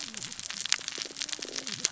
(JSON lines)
{"label": "biophony, cascading saw", "recorder": "SoundTrap 600 or HydroMoth"}